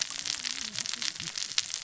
{"label": "biophony, cascading saw", "recorder": "SoundTrap 600 or HydroMoth"}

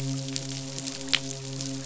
{"label": "biophony, midshipman", "recorder": "SoundTrap 500"}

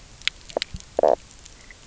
{"label": "biophony, knock croak", "recorder": "SoundTrap 300"}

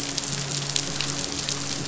{"label": "biophony, midshipman", "recorder": "SoundTrap 500"}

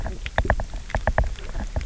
{"label": "biophony, knock", "recorder": "SoundTrap 300"}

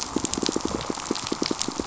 {"label": "biophony, pulse", "recorder": "SoundTrap 500"}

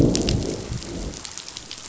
{"label": "biophony, growl", "recorder": "SoundTrap 500"}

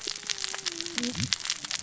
{"label": "biophony, cascading saw", "recorder": "SoundTrap 600 or HydroMoth"}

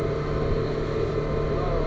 {"label": "anthrophony, boat engine", "recorder": "SoundTrap 300"}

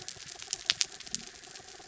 {"label": "anthrophony, mechanical", "recorder": "SoundTrap 300"}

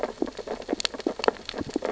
{"label": "biophony, sea urchins (Echinidae)", "recorder": "SoundTrap 600 or HydroMoth"}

